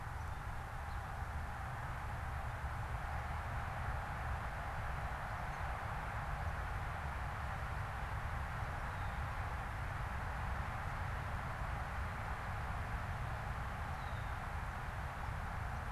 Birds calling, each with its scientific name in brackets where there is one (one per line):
Red-winged Blackbird (Agelaius phoeniceus)